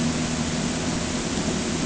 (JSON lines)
{"label": "anthrophony, boat engine", "recorder": "HydroMoth"}